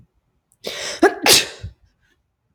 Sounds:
Sneeze